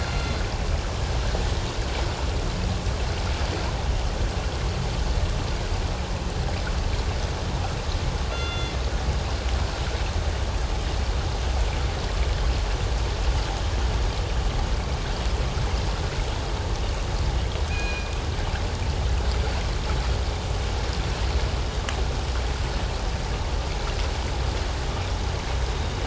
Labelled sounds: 0.0	0.4	killer whale, northern resident, G clan, 2.0 to 4.2 kHz
8.3	8.8	killer whale, northern resident, G clan, 1.3 to 3.5 kHz
17.7	18.2	killer whale, northern resident, G clan, 1.5 to 5.0 kHz
25.7	26.0	killer whale, northern resident, G clan, 3.6 to 3.9 kHz

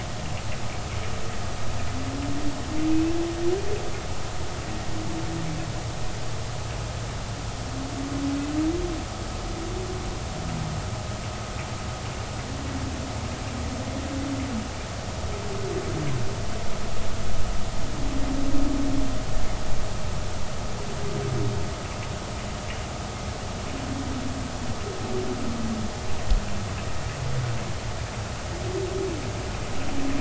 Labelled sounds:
2.9	3.2	humpback whale, 2.5 to 2.7 kHz

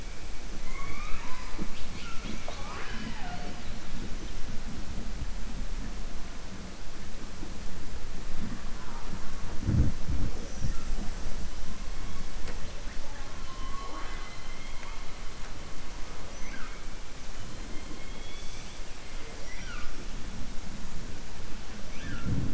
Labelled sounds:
13.4	15.0	killer whale, southern resident, 0.45 to 4.1 kHz
19.1	19.9	killer whale, southern resident, 1.2 to 5.8 kHz

